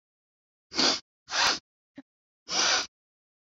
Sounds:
Sniff